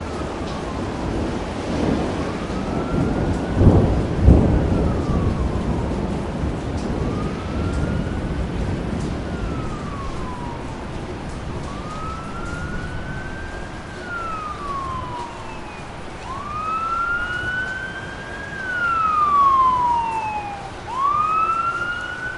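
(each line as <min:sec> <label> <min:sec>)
0:00.0 Rain sounds. 0:22.4
0:00.0 The siren sounds are approaching. 0:22.4
0:00.0 Thunder rumbles. 0:22.4
0:03.4 The bending sounds of large metal sheets. 0:05.3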